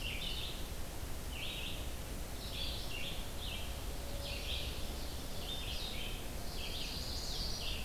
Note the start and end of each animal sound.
[0.00, 7.85] Red-eyed Vireo (Vireo olivaceus)
[3.88, 5.76] Ovenbird (Seiurus aurocapilla)
[6.14, 7.85] Pine Warbler (Setophaga pinus)

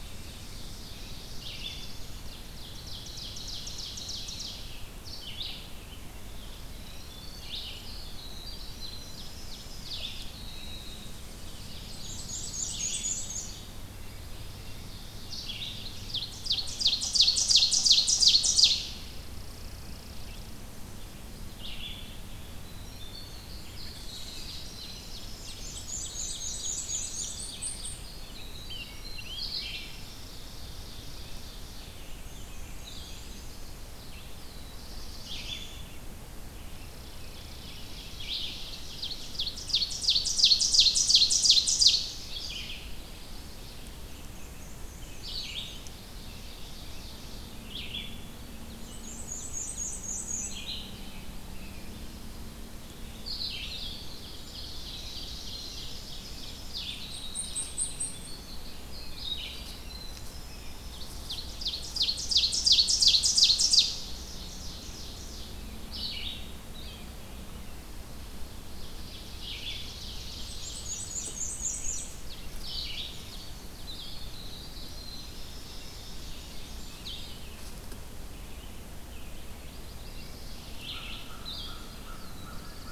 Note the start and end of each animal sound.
[0.00, 1.30] Rose-breasted Grosbeak (Pheucticus ludovicianus)
[0.00, 1.57] Ovenbird (Seiurus aurocapilla)
[0.00, 15.72] Red-eyed Vireo (Vireo olivaceus)
[0.91, 2.44] Black-throated Blue Warbler (Setophaga caerulescens)
[2.20, 4.62] Ovenbird (Seiurus aurocapilla)
[6.09, 8.00] Chipping Sparrow (Spizella passerina)
[6.16, 9.61] Winter Wren (Troglodytes hiemalis)
[7.86, 10.38] Ovenbird (Seiurus aurocapilla)
[9.67, 11.67] Tennessee Warbler (Leiothlypis peregrina)
[11.21, 18.95] Ovenbird (Seiurus aurocapilla)
[11.58, 13.55] Black-and-white Warbler (Mniotilta varia)
[13.86, 15.73] American Robin (Turdus migratorius)
[18.86, 20.74] Chipping Sparrow (Spizella passerina)
[21.52, 29.86] Red-eyed Vireo (Vireo olivaceus)
[22.29, 29.72] Winter Wren (Troglodytes hiemalis)
[23.97, 27.95] Ovenbird (Seiurus aurocapilla)
[25.58, 27.40] Black-and-white Warbler (Mniotilta varia)
[26.77, 28.07] Blackpoll Warbler (Setophaga striata)
[27.90, 30.12] Rose-breasted Grosbeak (Pheucticus ludovicianus)
[29.89, 32.17] Ovenbird (Seiurus aurocapilla)
[29.95, 31.64] Chipping Sparrow (Spizella passerina)
[31.59, 82.92] Red-eyed Vireo (Vireo olivaceus)
[32.06, 33.71] Black-and-white Warbler (Mniotilta varia)
[32.74, 33.22] Blue-headed Vireo (Vireo solitarius)
[33.09, 34.11] Yellow Warbler (Setophaga petechia)
[34.27, 35.90] Black-throated Blue Warbler (Setophaga caerulescens)
[36.46, 38.90] American Robin (Turdus migratorius)
[36.55, 38.39] Chipping Sparrow (Spizella passerina)
[37.91, 42.16] Ovenbird (Seiurus aurocapilla)
[42.97, 43.86] Yellow Warbler (Setophaga petechia)
[43.98, 45.92] Black-and-white Warbler (Mniotilta varia)
[45.91, 47.63] Ovenbird (Seiurus aurocapilla)
[48.26, 49.83] Ovenbird (Seiurus aurocapilla)
[48.61, 50.68] Black-and-white Warbler (Mniotilta varia)
[50.28, 51.89] American Robin (Turdus migratorius)
[53.12, 61.29] Winter Wren (Troglodytes hiemalis)
[54.18, 57.97] Ovenbird (Seiurus aurocapilla)
[56.54, 58.52] Black-and-white Warbler (Mniotilta varia)
[60.43, 65.52] Ovenbird (Seiurus aurocapilla)
[66.62, 67.03] Blue-headed Vireo (Vireo solitarius)
[67.53, 68.59] Chipping Sparrow (Spizella passerina)
[68.71, 77.05] Ovenbird (Seiurus aurocapilla)
[70.29, 72.25] Black-and-white Warbler (Mniotilta varia)
[72.41, 77.47] Winter Wren (Troglodytes hiemalis)
[78.23, 80.37] American Robin (Turdus migratorius)
[79.32, 80.78] Yellow-rumped Warbler (Setophaga coronata)
[80.79, 82.92] American Crow (Corvus brachyrhynchos)
[81.94, 82.92] Black-throated Blue Warbler (Setophaga caerulescens)

